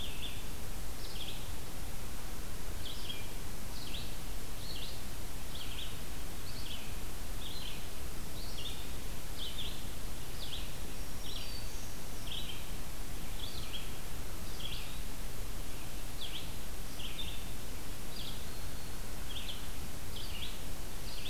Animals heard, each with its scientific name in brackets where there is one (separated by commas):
Black-throated Green Warbler (Setophaga virens), Red-eyed Vireo (Vireo olivaceus)